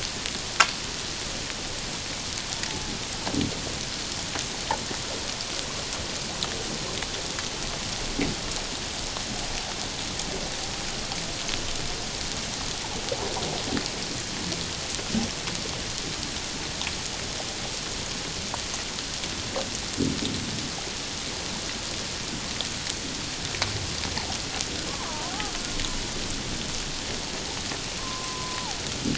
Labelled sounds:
25.0	25.3	killer whale, Bigg's (transient), 0.88 to 1.3 kHz
28.0	28.8	killer whale, Bigg's (transient), 0.78 to 1.1 kHz

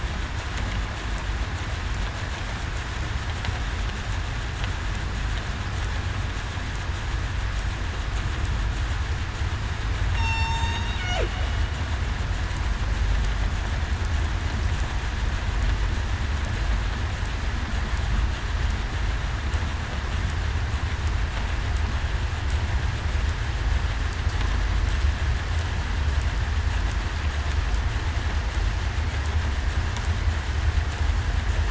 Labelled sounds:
10.2	10.8	killer whale, southern resident, 0.87 to 8.0 kHz

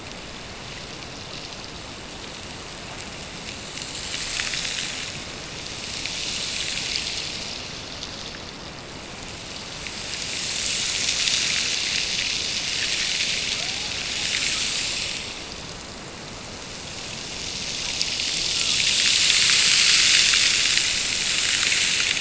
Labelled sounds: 13.5	14.0	killer whale, Bigg's (transient), Gulf of Alaska transient, 0.43 to 1.9 kHz

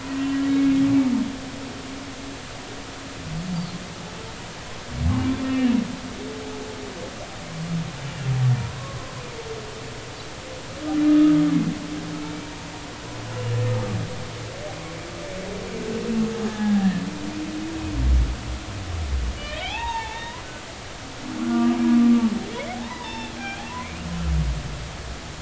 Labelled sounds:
0.1	0.4	humpback whale, 2.9 to 3.1 kHz
5.4	5.7	humpback whale, 1.7 to 2.9 kHz
8.6	9.1	humpback whale, 0.90 to 1.2 kHz
11.1	11.4	humpback whale, 1.2 to 1.3 kHz
16.5	16.9	humpback whale, 0.80 to 1.8 kHz
19.4	20.4	humpback whale, 0.80 to 3.8 kHz
21.4	21.8	humpback whale, 1.1 to 1.5 kHz
22.8	24.0	humpback whale, 0.83 to 5.5 kHz

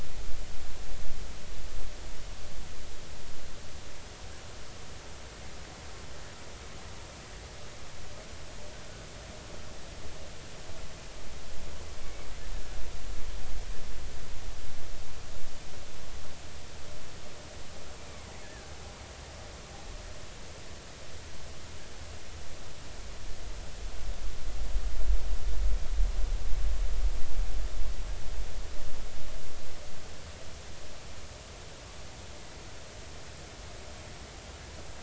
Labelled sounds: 18.4	18.7	killer whale, 1.5 to 1.8 kHz

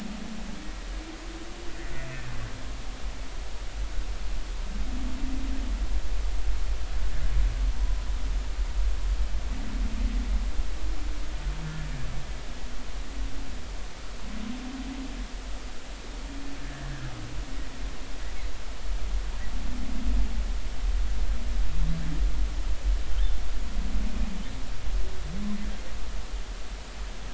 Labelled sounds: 16.6	16.9	humpback whale, 1.7 to 1.8 kHz

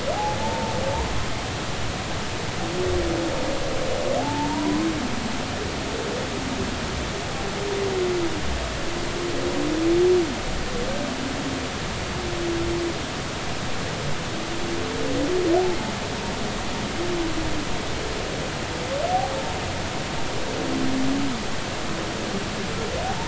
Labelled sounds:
0.1	0.7	humpback whale, 0.80 to 0.96 kHz
4.2	4.8	humpback whale, 0.80 to 1.1 kHz

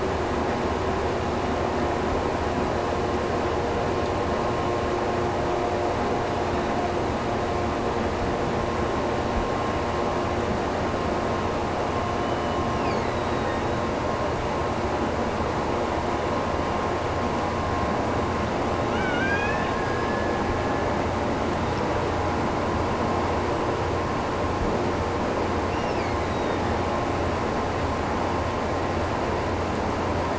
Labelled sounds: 12.0	14.0	killer whale, Bigg's (transient), Gulf of Alaska transient, 1.7 to 6.1 kHz
18.8	21.1	killer whale, Bigg's (transient), Gulf of Alaska transient, 1.1 to 5.5 kHz
25.7	27.2	killer whale, Bigg's (transient), Gulf of Alaska transient, 1.7 to 5.9 kHz

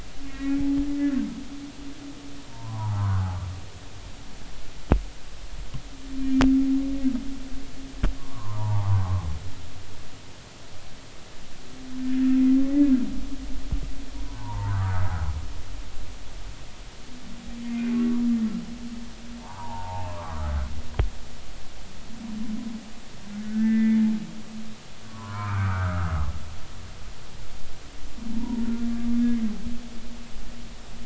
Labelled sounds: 0.3	1.2	humpback whale, 1.8 to 2.4 kHz
2.5	3.3	humpback whale, 0.80 to 1.6 kHz
6.1	6.4	humpback whale, 2.3 to 2.4 kHz
8.2	9.0	humpback whale, 0.80 to 1.3 kHz
14.2	14.9	humpback whale, 0.83 to 1.6 kHz
17.6	17.9	humpback whale, 2.0 to 2.2 kHz
19.4	20.5	humpback whale, 0.80 to 1.4 kHz
23.4	24.1	humpback whale, 1.4 to 2.5 kHz
25.0	26.1	humpback whale, 0.90 to 2.5 kHz
28.3	28.6	humpback whale, 0.86 to 1.0 kHz

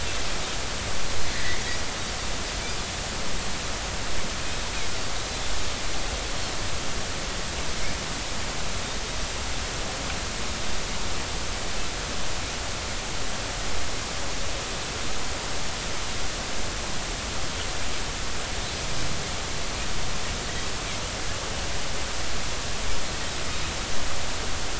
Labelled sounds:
1.3	1.6	Pacific white-sided dolphin, 1.7 to 2.2 kHz

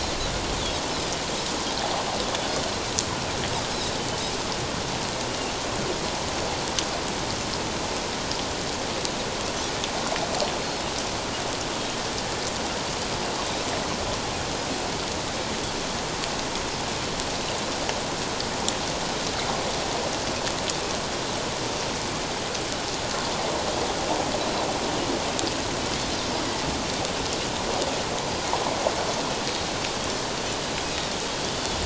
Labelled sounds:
2.6	2.9	Pacific white-sided dolphin, 4.0 to 4.2 kHz
5.3	5.5	Pacific white-sided dolphin, 2.6 to 2.9 kHz

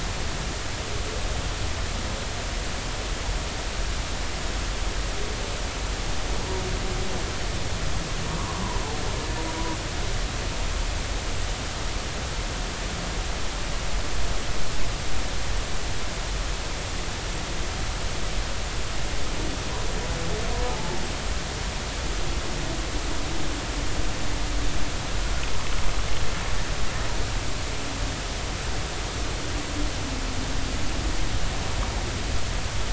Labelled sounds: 20.7	21.0	humpback whale, 0.83 to 0.93 kHz

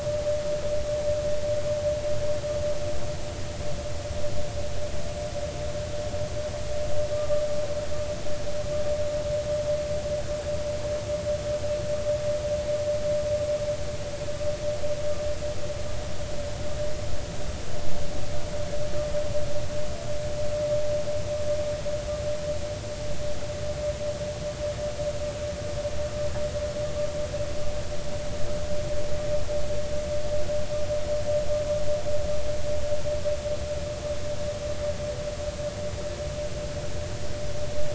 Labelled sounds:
7.1	7.4	vessel noise, 1.1 to 1.2 kHz

